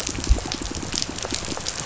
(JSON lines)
{"label": "biophony, pulse", "recorder": "SoundTrap 500"}